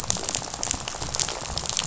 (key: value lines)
label: biophony, rattle
recorder: SoundTrap 500